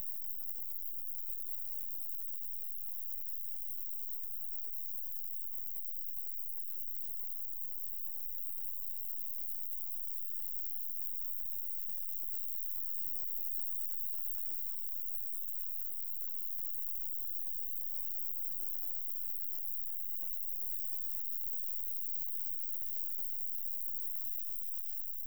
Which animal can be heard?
Roeseliana roeselii, an orthopteran